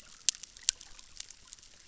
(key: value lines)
label: biophony, chorus
recorder: SoundTrap 600